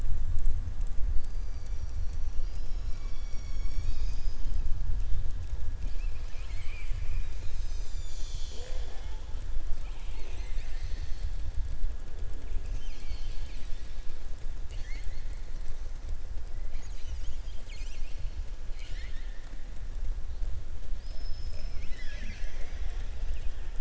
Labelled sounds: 5.9	7.3	killer whale, southern resident, 1.1 to 4.4 kHz
14.6	15.2	killer whale, southern resident, 1.7 to 7.9 kHz
18.6	19.5	killer whale, southern resident, 1.5 to 7.6 kHz
20.9	23.1	killer whale, southern resident, 0.54 to 7.7 kHz

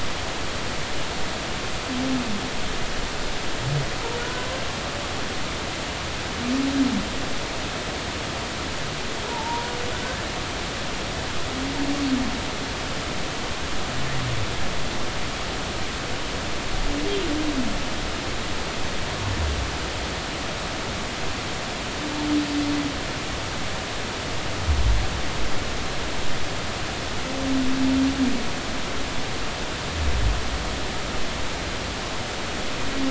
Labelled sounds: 4.2	4.5	humpback whale, 1.4 to 1.5 kHz
9.3	9.7	humpback whale, 0.83 to 1.0 kHz

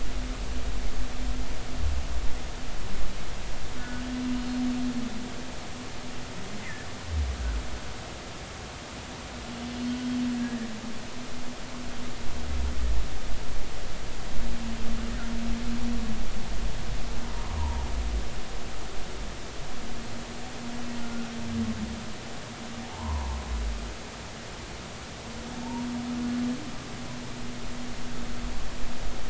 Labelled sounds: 3.8	4.0	humpback whale, 1.4 to 1.5 kHz
6.6	6.9	humpback whale, 1.7 to 2.1 kHz
10.4	10.7	humpback whale, 1.6 to 2.0 kHz
17.6	17.8	humpback whale, 0.86 to 1.1 kHz
21.0	21.3	humpback whale, 1.3 to 1.5 kHz
22.8	23.4	humpback whale, 0.80 to 1.1 kHz

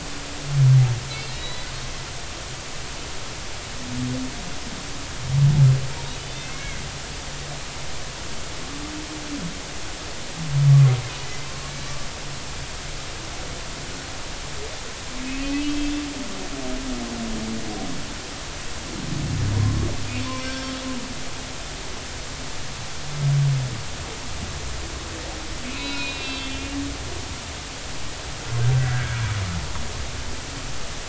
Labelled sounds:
1.1	1.7	humpback whale, 1.8 to 4.3 kHz
6.2	6.8	humpback whale, 1.9 to 3.7 kHz
11.2	11.5	humpback whale, 1.9 to 2.1 kHz
15.4	15.9	humpback whale, 2.4 to 3.3 kHz
19.6	20.7	humpback whale, 0.99 to 2.4 kHz
25.6	26.8	humpback whale, 0.93 to 4.6 kHz
28.7	29.2	humpback whale, 1.3 to 1.7 kHz

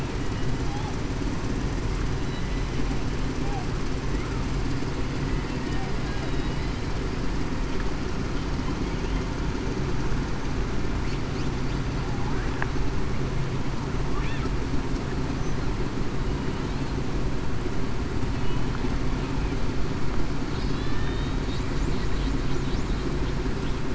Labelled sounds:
21.0	21.4	killer whale, Bigg's (transient), 3.6 to 3.9 kHz

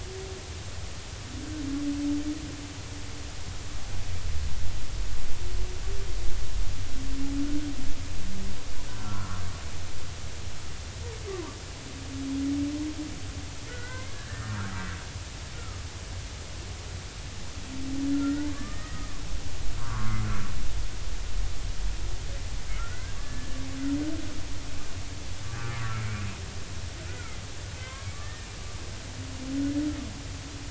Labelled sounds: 9.0	9.4	humpback whale, 0.96 to 1.5 kHz
11.3	11.6	humpback whale, 0.90 to 1.2 kHz
13.7	14.6	humpback whale, 1.3 to 2.2 kHz
18.2	19.5	humpback whale, 1.1 to 2.1 kHz
19.8	20.2	humpback whale, 0.93 to 1.3 kHz
22.8	23.6	humpback whale, 1.3 to 2.2 kHz
25.8	26.1	humpback whale, 1.3 to 1.5 kHz
27.8	28.5	humpback whale, 0.99 to 2.2 kHz

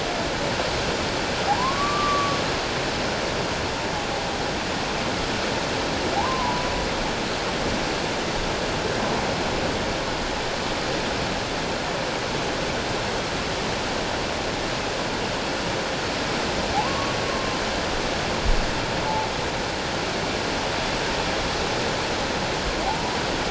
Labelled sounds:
1.5	2.4	humpback whale, 0.78 to 1.2 kHz
6.1	6.6	humpback whale, 0.78 to 1.1 kHz
16.7	17.6	humpback whale, 0.78 to 1.2 kHz

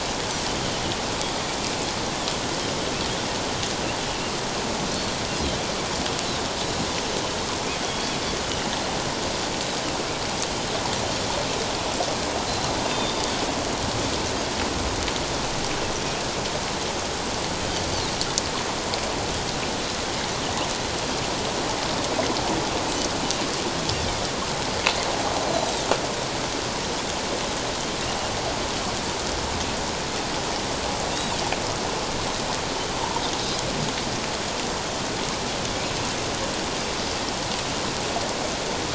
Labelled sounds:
7.8	8.2	Pacific white-sided dolphin, 3.2 to 3.5 kHz
12.9	13.2	Pacific white-sided dolphin, 3.5 to 3.7 kHz

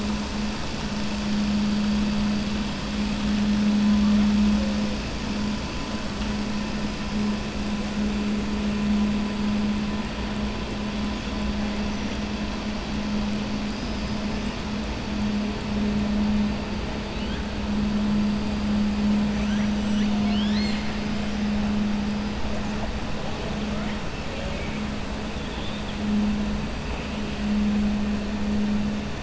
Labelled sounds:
13.6	14.3	killer whale, southern resident, 4.6 to 5.7 kHz
19.3	21.0	killer whale, southern resident, 1.7 to 7.8 kHz

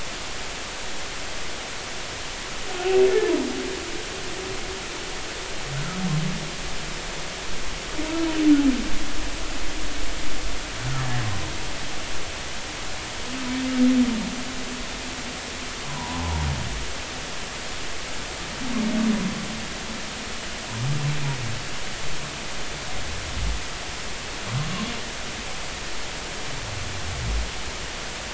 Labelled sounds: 3.1	3.3	humpback whale, 1.7 to 1.9 kHz
15.9	16.2	humpback whale, 0.80 to 1.1 kHz

